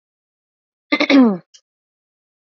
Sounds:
Throat clearing